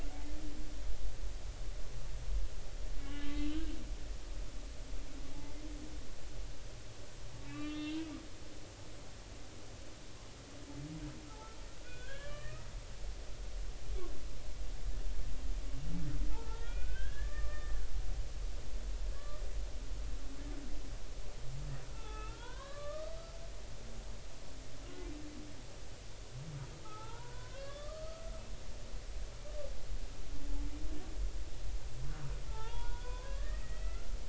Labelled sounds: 0.3	0.5	humpback whale, 1.1 to 1.2 kHz
3.0	3.8	humpback whale, 1.5 to 2.1 kHz
7.5	8.1	humpback whale, 1.1 to 4.1 kHz
11.8	12.7	humpback whale, 1.1 to 3.6 kHz
16.3	17.9	humpback whale, 0.83 to 3.5 kHz
19.2	19.4	humpback whale, 1.1 to 1.3 kHz
21.9	23.1	humpback whale, 0.80 to 4.2 kHz
26.8	28.2	humpback whale, 0.80 to 1.8 kHz
32.5	34.1	humpback whale, 0.83 to 3.5 kHz

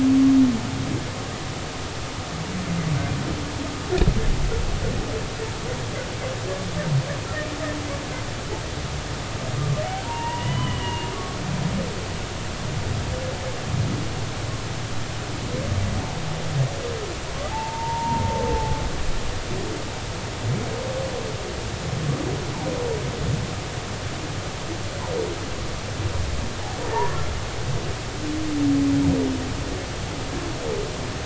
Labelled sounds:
10.0	11.1	humpback whale, 0.86 to 3.1 kHz
17.5	18.8	humpback whale, 0.80 to 0.99 kHz
26.9	27.2	humpback whale, 1.7 to 1.9 kHz

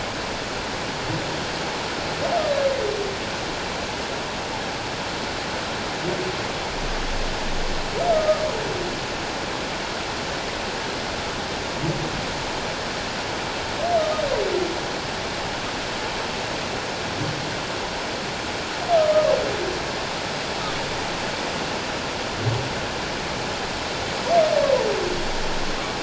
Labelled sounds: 8.1	8.4	humpback whale, 1.2 to 1.3 kHz

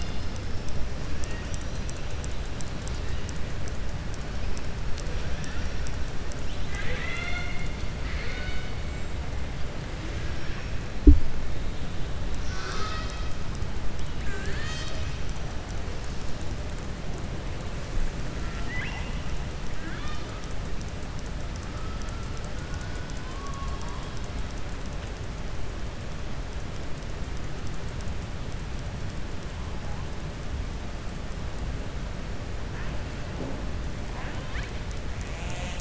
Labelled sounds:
6.4	8.7	killer whale, southern resident, 0.68 to 7.8 kHz
18.4	19.2	killer whale, southern resident, 0.80 to 4.0 kHz
34.0	34.7	killer whale, southern resident, 0.75 to 4.6 kHz

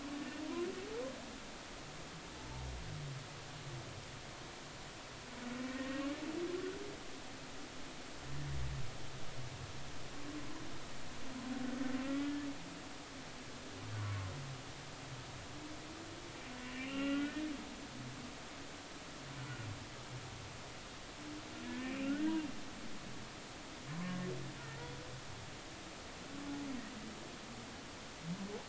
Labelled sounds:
0.2	0.4	humpback whale, 1.8 to 1.9 kHz
5.7	6.0	humpback whale, 1.8 to 1.9 kHz
12.0	12.4	humpback whale, 1.2 to 1.5 kHz
14.0	14.3	humpback whale, 0.96 to 1.2 kHz
16.6	17.4	humpback whale, 1.3 to 3.0 kHz
19.4	19.7	humpback whale, 1.3 to 1.5 kHz
21.6	22.3	humpback whale, 1.3 to 2.8 kHz
24.0	24.3	humpback whale, 0.96 to 1.1 kHz
24.6	24.9	humpback whale, 1.8 to 2.0 kHz

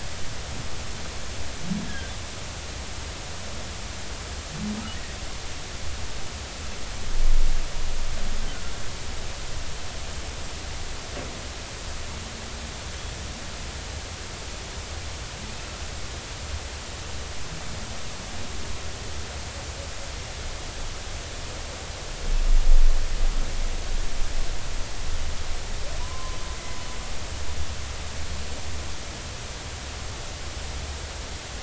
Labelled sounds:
26.0	26.4	humpback whale, 0.93 to 1.1 kHz

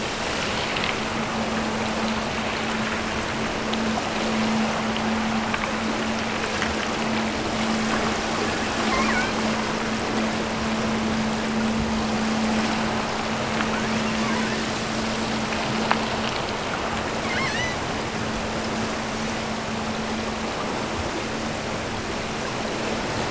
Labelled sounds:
8.8	9.4	killer whale, offshore, 0.73 to 2.6 kHz
13.9	14.8	killer whale, offshore, 1.5 to 3.2 kHz
17.2	17.9	killer whale, offshore, 1.2 to 6.6 kHz

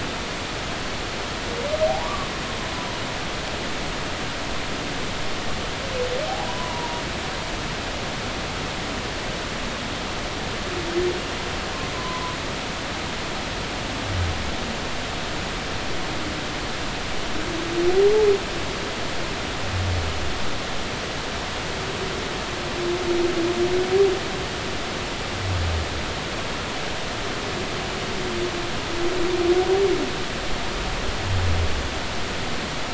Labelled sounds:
1.9	2.3	humpback whale, 0.80 to 1.2 kHz
6.3	7.0	humpback whale, 0.80 to 1.1 kHz
11.9	12.3	humpback whale, 0.96 to 1.1 kHz

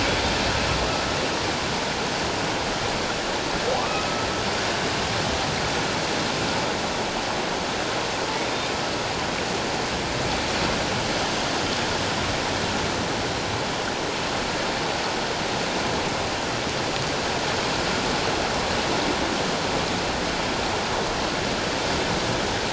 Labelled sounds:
3.8	4.1	humpback whale, 1.1 to 1.3 kHz
8.4	8.7	humpback whale, 3.6 to 3.7 kHz

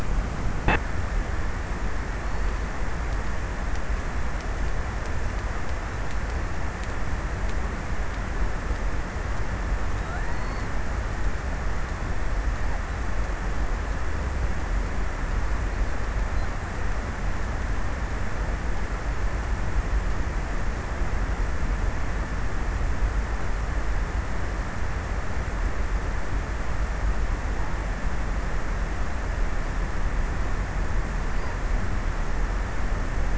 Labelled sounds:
10.1	10.9	killer whale, offshore, 3.4 to 4.9 kHz

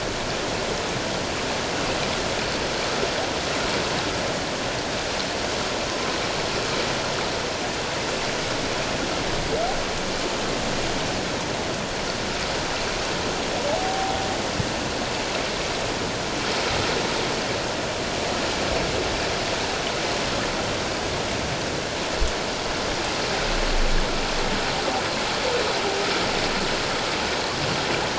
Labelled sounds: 13.7	14.2	humpback whale, 0.78 to 0.91 kHz

